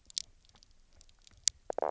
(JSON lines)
{"label": "biophony, knock croak", "recorder": "SoundTrap 300"}